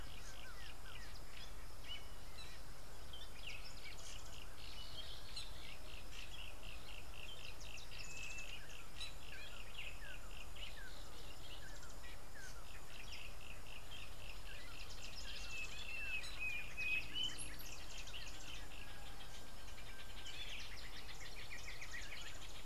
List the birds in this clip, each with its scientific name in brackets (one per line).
Yellow-breasted Apalis (Apalis flavida)
Northern Brownbul (Phyllastrephus strepitans)